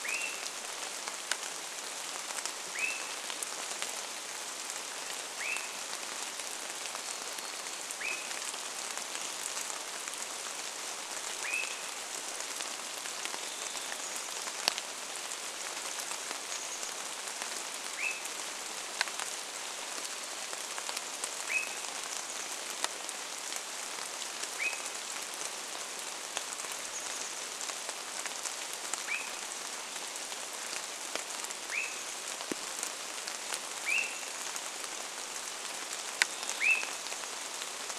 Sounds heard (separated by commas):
Swainson's Thrush call, Varied Thrush song, Chestnut-backed Chickadee call, rain